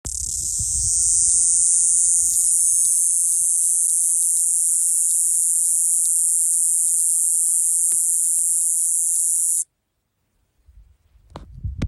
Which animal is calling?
Diceroprocta eugraphica, a cicada